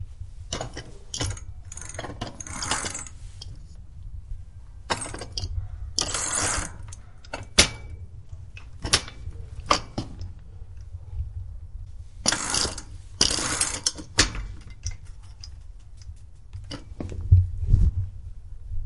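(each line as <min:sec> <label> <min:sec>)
0:00.5 The chain of a bicycle moves. 0:03.1
0:04.8 The chain of a bicycle moves. 0:10.3
0:12.3 The chain of a bicycle moves. 0:15.0
0:16.5 Someone steps on a bicycle pedal. 0:18.1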